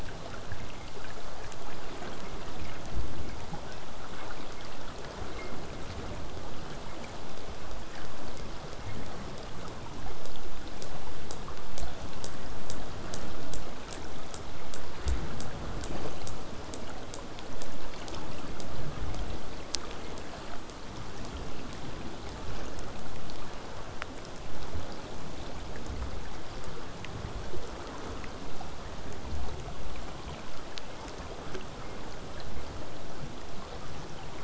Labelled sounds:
29.5	34.4	vessel noise, 0 to 8.0 kHz

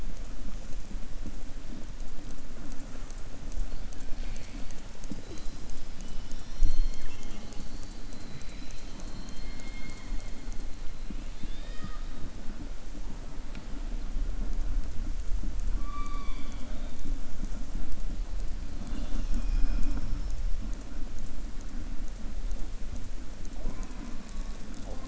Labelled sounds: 11.2	12.1	killer whale, southern resident, 0.47 to 5.1 kHz
15.7	17.0	killer whale, southern resident, 0.62 to 7.0 kHz

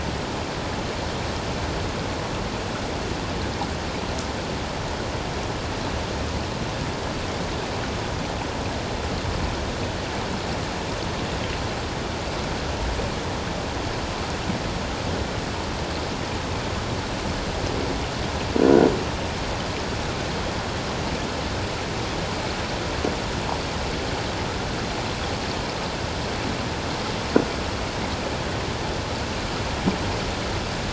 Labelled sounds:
18.6	18.9	croaking sound likely from a nearby submerged object, 1.4 to 1.5 kHz

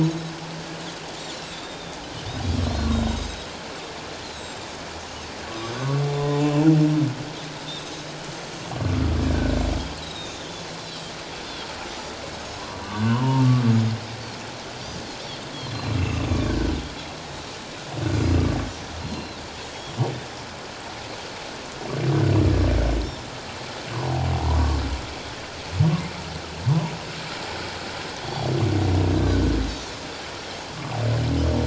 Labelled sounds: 1.1	2.0	Pacific white-sided dolphin, 3.4 to 7.3 kHz
2.6	3.5	Pacific white-sided dolphin, 3.7 to 6.5 kHz
4.3	4.7	Pacific white-sided dolphin, 3.7 to 8.0 kHz
6.1	6.7	humpback whale, 0.97 to 2.8 kHz
9.3	10.6	humpback whale, 1.4 to 4.0 kHz
10.8	11.1	Pacific white-sided dolphin, 3.8 to 4.1 kHz
11.9	12.1	Pacific white-sided dolphin, 5.7 to 6.1 kHz
12.8	13.5	humpback whale, 0.88 to 1.6 kHz
15.7	16.0	Pacific white-sided dolphin, 3.9 to 4.2 kHz
16.0	16.8	humpback whale, 1.4 to 2.8 kHz
19.0	19.4	Pacific white-sided dolphin, 3.6 to 4.3 kHz
24.5	24.8	humpback whale, 1.0 to 1.2 kHz

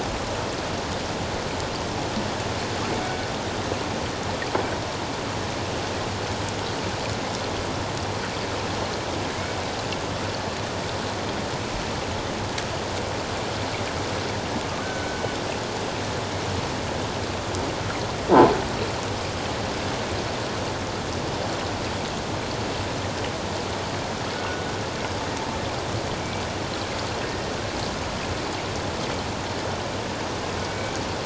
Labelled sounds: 14.8	15.2	killer whale, Bigg's (transient), 1.4 to 1.6 kHz
24.3	24.7	killer whale, Bigg's (transient), 1.4 to 1.5 kHz
27.2	27.5	killer whale, Bigg's (transient), 1.8 to 1.9 kHz
30.6	31.0	killer whale, Bigg's (transient), 2.2 to 2.4 kHz

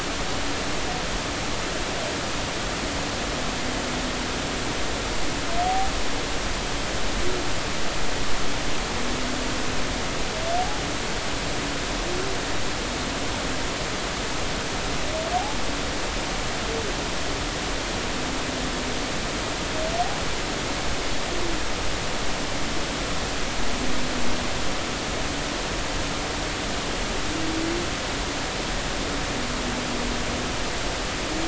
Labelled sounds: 10.6	10.8	humpback whale, 0.80 to 0.90 kHz

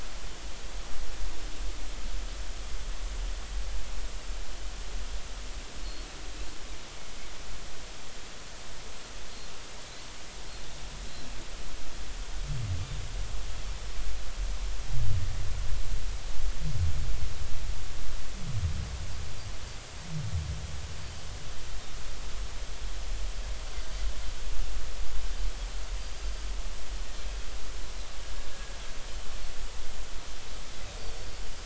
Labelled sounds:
31.0	31.3	Pacific white-sided dolphin, 4.4 to 4.7 kHz

